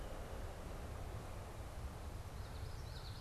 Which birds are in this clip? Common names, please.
Common Yellowthroat